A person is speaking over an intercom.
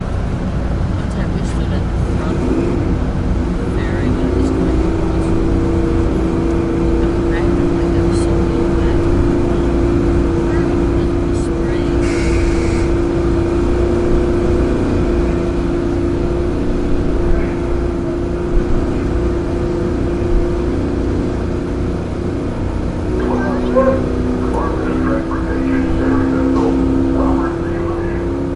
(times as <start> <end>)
23.1 28.6